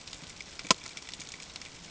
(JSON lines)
{"label": "ambient", "recorder": "HydroMoth"}